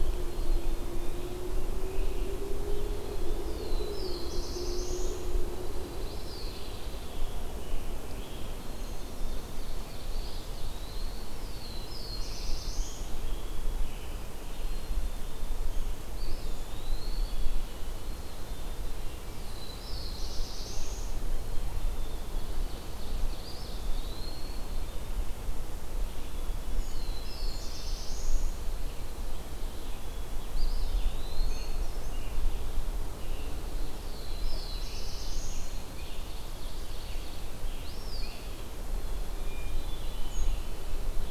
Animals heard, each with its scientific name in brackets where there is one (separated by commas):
Scarlet Tanager (Piranga olivacea), Eastern Wood-Pewee (Contopus virens), Ovenbird (Seiurus aurocapilla), Black-capped Chickadee (Poecile atricapillus), Hermit Thrush (Catharus guttatus), Brown Creeper (Certhia americana), Black-throated Blue Warbler (Setophaga caerulescens)